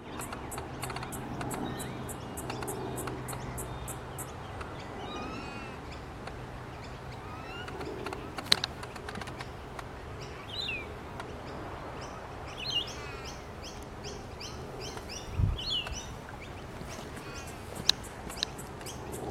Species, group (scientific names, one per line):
Yoyetta celis
Cicadidae